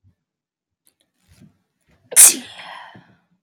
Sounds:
Sneeze